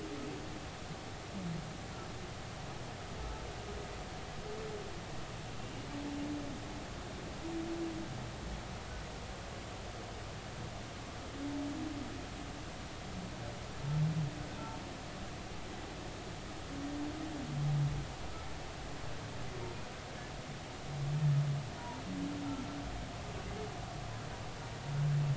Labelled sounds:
5.6	5.9	humpback whale, 2.7 to 2.9 kHz

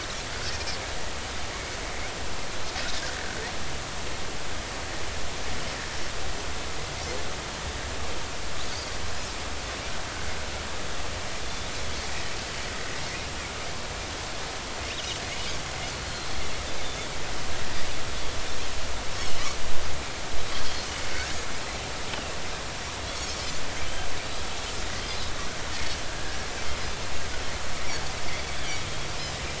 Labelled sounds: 11.4	11.7	Pacific white-sided dolphin, 3.4 to 3.6 kHz
16.1	17.1	Pacific white-sided dolphin, 3.4 to 4.4 kHz
22.1	22.3	Pacific white-sided dolphin, 2.6 to 3.3 kHz
23.1	23.4	Pacific white-sided dolphin, 4.1 to 4.6 kHz
26.1	26.3	Pacific white-sided dolphin, 1.4 to 1.8 kHz

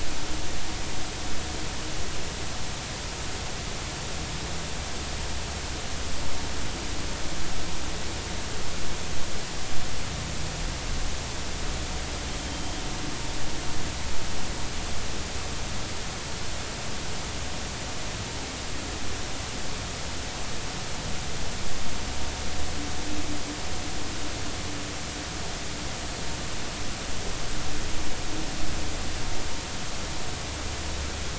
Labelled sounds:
12.5	12.8	humpback whale, 3.1 to 3.2 kHz

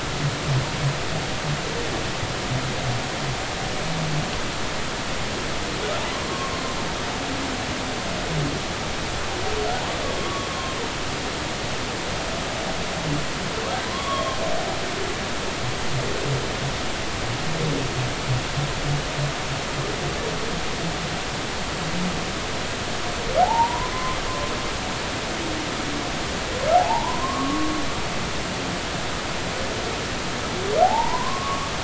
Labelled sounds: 6.2	6.5	humpback whale, 0.99 to 1.2 kHz
10.2	10.5	humpback whale, 1.1 to 1.2 kHz
13.9	14.4	humpback whale, 0.96 to 3.4 kHz
23.4	24.2	humpback whale, 0.80 to 1.1 kHz
26.7	27.7	humpback whale, 0.80 to 1.3 kHz
30.8	31.7	humpback whale, 0.80 to 1.2 kHz

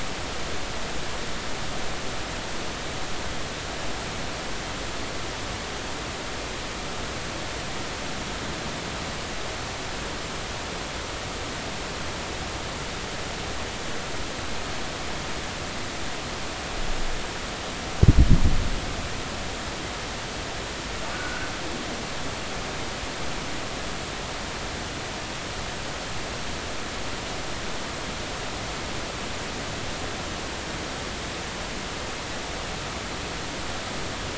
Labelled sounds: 21.1	21.5	humpback whale, 1.4 to 1.7 kHz

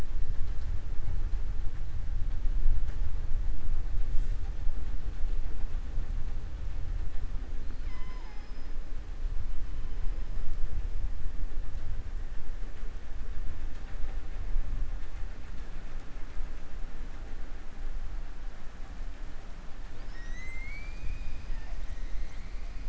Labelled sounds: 7.6	8.7	killer whale, southern resident, 0.84 to 6.1 kHz
19.9	21.8	killer whale, southern resident, 0.89 to 7.8 kHz

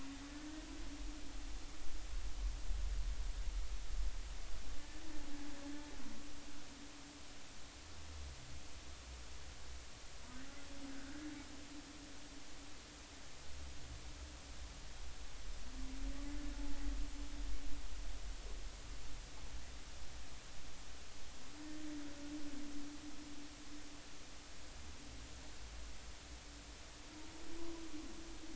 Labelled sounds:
10.9	11.3	humpback whale, 1.4 to 1.9 kHz

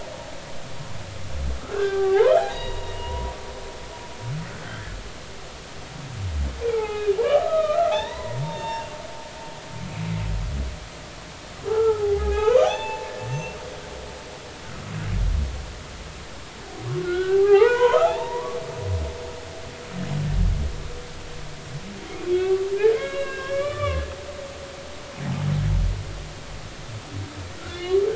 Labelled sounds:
1.6	3.3	humpback whale, 0.80 to 4.0 kHz
6.7	9.0	humpback whale, 0.80 to 7.4 kHz
11.7	13.6	humpback whale, 0.80 to 3.6 kHz
17.0	19.0	humpback whale, 0.80 to 3.8 kHz
22.4	24.1	humpback whale, 1.0 to 5.6 kHz
27.7	28.0	humpback whale, 1.7 to 3.0 kHz

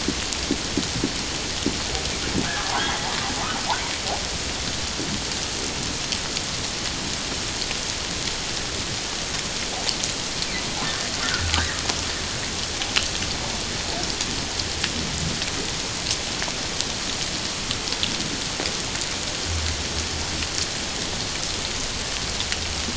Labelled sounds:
2.4	3.1	humpback whale, 1.4 to 2.0 kHz
10.8	11.5	humpback whale, 1.3 to 1.8 kHz

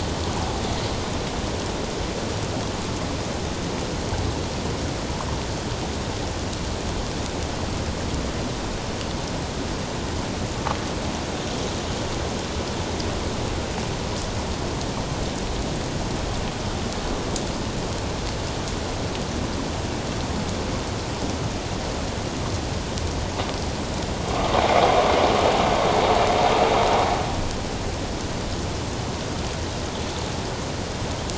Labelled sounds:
24.4	24.6	vessel noise, 0.97 to 1.3 kHz

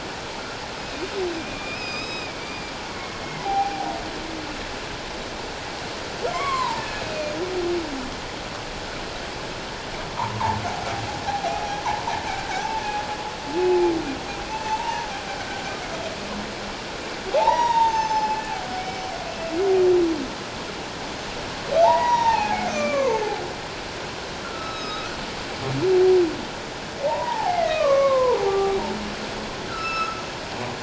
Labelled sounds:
1.4	3.9	humpback whale, 0.78 to 5.2 kHz
6.3	7.3	humpback whale, 0.84 to 3.4 kHz
10.2	11.6	humpback whale, 0.78 to 1.2 kHz
14.7	15.1	humpback whale, 0.81 to 1.0 kHz
17.3	19.1	humpback whale, 0.78 to 6.5 kHz
21.8	23.2	humpback whale, 0.78 to 6.3 kHz
24.4	25.2	humpback whale, 1.2 to 5.3 kHz
27.0	28.8	humpback whale, 0.78 to 2.3 kHz
29.6	30.2	humpback whale, 1.2 to 8.0 kHz

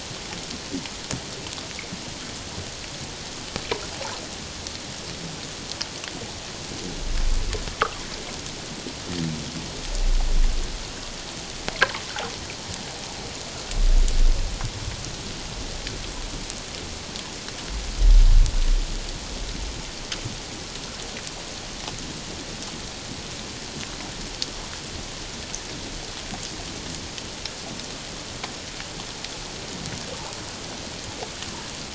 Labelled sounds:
3.9	4.2	humpback whale, 0.78 to 1.1 kHz

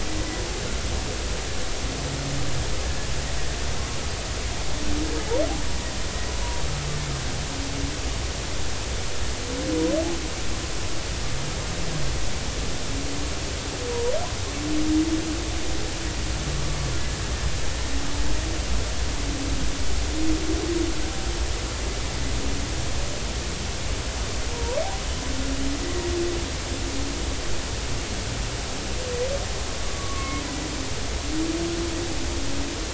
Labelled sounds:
24.5	24.8	humpback whale, 0.90 to 1.0 kHz
29.8	30.4	humpback whale, 1.0 to 2.2 kHz

